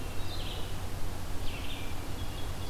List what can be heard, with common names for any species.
Hermit Thrush, Red-eyed Vireo